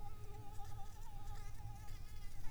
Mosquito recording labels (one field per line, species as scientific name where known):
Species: Anopheles arabiensis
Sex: female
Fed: unfed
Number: one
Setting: cup